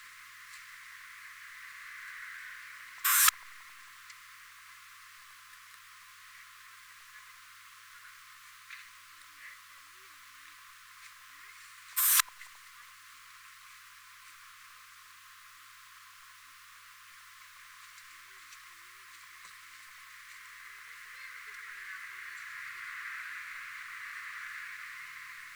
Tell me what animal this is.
Poecilimon affinis, an orthopteran